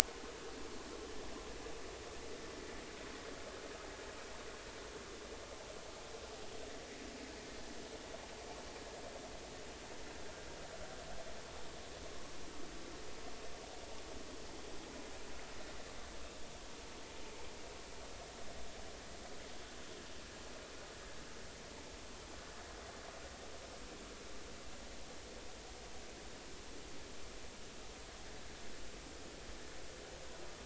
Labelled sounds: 12.0	12.3	vessel noise, 1.0 to 1.2 kHz

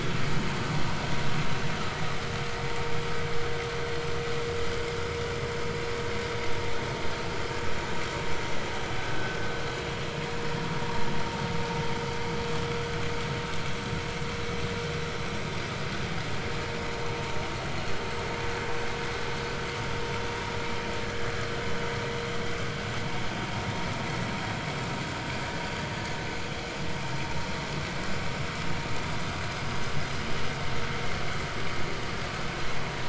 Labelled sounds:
21.0	21.3	vessel noise, 1.6 to 1.8 kHz

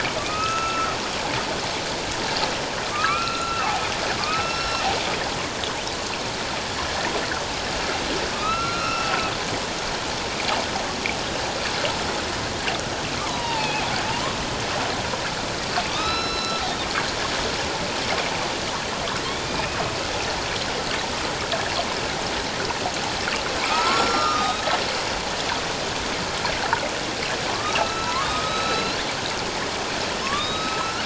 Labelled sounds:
2.9	4.8	killer whale, northern resident, A clan, AB subclan, 1.0 to 5.5 kHz
8.3	9.1	killer whale, northern resident, A clan, AB subclan, 1.1 to 5.6 kHz
13.2	13.8	killer whale, northern resident, A clan, AB subclan, 0.84 to 3.8 kHz
15.9	16.6	killer whale, northern resident, A clan, AB subclan, 1.1 to 5.4 kHz
19.4	19.8	killer whale, northern resident, A clan, AB subclan, 2.3 to 5.0 kHz
23.6	24.7	killer whale, northern resident, A clan, AB subclan, 0.78 to 5.5 kHz
27.5	29.0	killer whale, northern resident, A clan, AB subclan, 0.91 to 8.0 kHz
30.2	31.0	killer whale, northern resident, A clan, AB subclan, 1.0 to 5.2 kHz

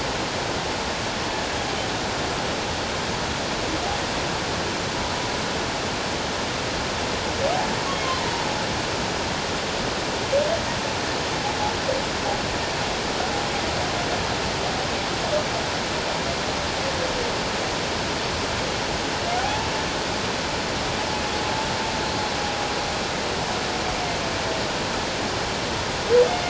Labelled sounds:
19.3	19.7	humpback whale, 0.78 to 0.97 kHz

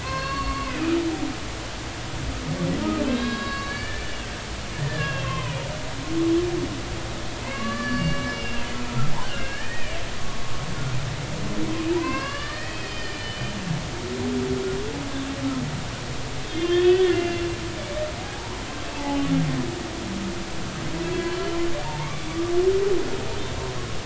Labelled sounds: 0.0	1.0	humpback whale, 0.99 to 4.4 kHz
3.0	4.3	humpback whale, 1.1 to 5.0 kHz
4.8	5.6	humpback whale, 0.93 to 3.4 kHz
7.4	10.0	humpback whale, 1.1 to 5.2 kHz
11.9	13.5	humpback whale, 0.83 to 5.2 kHz
16.4	17.5	humpback whale, 1.7 to 3.7 kHz
18.3	19.2	humpback whale, 0.80 to 1.1 kHz
21.1	21.4	humpback whale, 4.3 to 4.4 kHz
21.8	22.3	humpback whale, 0.83 to 2.4 kHz

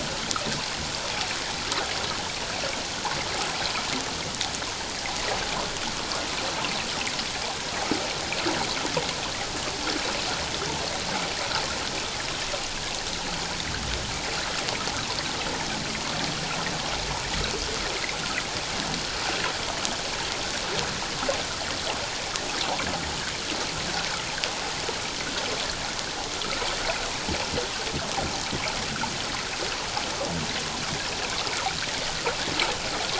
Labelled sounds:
26.3	26.6	water noise, 1.2 to 1.4 kHz

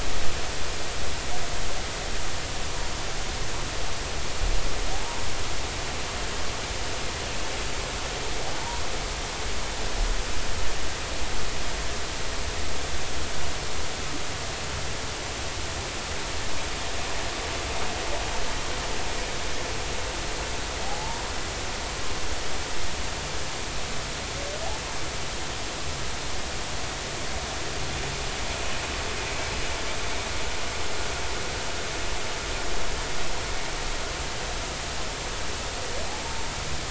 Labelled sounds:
4.9	5.2	humpback whale, 0.80 to 0.99 kHz
20.8	21.2	humpback whale, 0.80 to 1.0 kHz

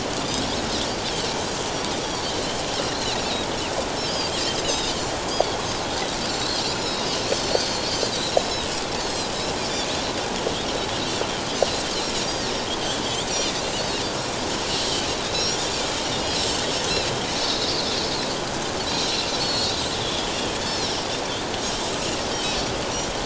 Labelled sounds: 1.9	3.3	Pacific white-sided dolphin, 2.4 to 6.1 kHz
4.0	4.3	Pacific white-sided dolphin, 2.9 to 5.1 kHz
4.6	5.0	Pacific white-sided dolphin, 3.5 to 6.5 kHz
6.3	9.3	Pacific white-sided dolphin, 3.7 to 7.6 kHz
9.9	10.2	Pacific white-sided dolphin, 3.8 to 4.1 kHz
13.3	14.0	Pacific white-sided dolphin, 2.2 to 4.7 kHz
14.8	15.5	Pacific white-sided dolphin, 2.9 to 4.1 kHz
16.0	16.3	Pacific white-sided dolphin, 2.8 to 3.0 kHz
18.9	20.3	Pacific white-sided dolphin, 3.2 to 7.4 kHz
20.6	20.9	Pacific white-sided dolphin, 3.8 to 4.5 kHz
22.3	22.6	Pacific white-sided dolphin, 3.7 to 3.9 kHz

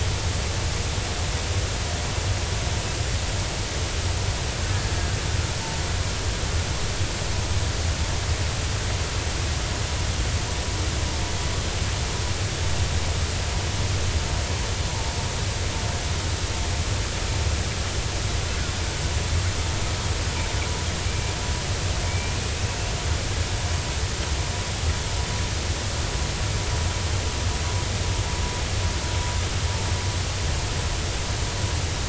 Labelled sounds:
14.9	15.1	vessel noise, 0.80 to 0.99 kHz
21.1	21.3	killer whale, 2.3 to 2.4 kHz
22.1	22.9	killer whale, 2.2 to 2.8 kHz

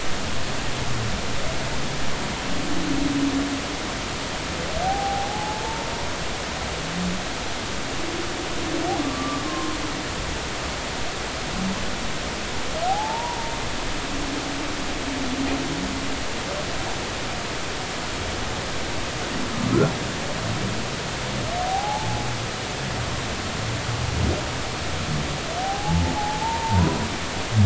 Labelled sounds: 4.8	5.9	humpback whale, 0.80 to 0.96 kHz
9.0	9.8	humpback whale, 0.96 to 1.2 kHz
12.9	13.5	humpback whale, 0.80 to 1.1 kHz
21.6	22.3	humpback whale, 0.80 to 0.93 kHz
25.6	27.0	humpback whale, 0.80 to 1.1 kHz

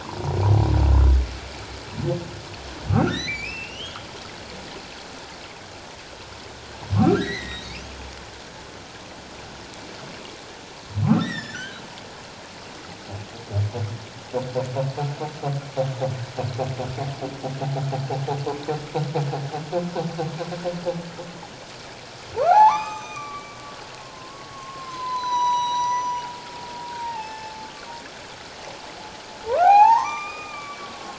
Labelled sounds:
0.0	0.3	humpback whale, 0.88 to 1.2 kHz
2.9	4.1	humpback whale, 1.1 to 4.2 kHz
6.9	7.9	humpback whale, 1.0 to 4.2 kHz
11.2	11.8	humpback whale, 1.3 to 5.8 kHz
22.4	23.6	humpback whale, 0.78 to 7.6 kHz
24.0	26.3	humpback whale, 0.91 to 7.9 kHz
27.0	27.9	humpback whale, 0.78 to 5.3 kHz
29.6	31.1	humpback whale, 0.78 to 6.0 kHz

